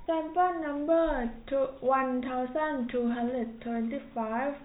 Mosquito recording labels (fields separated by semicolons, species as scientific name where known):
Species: no mosquito; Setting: cup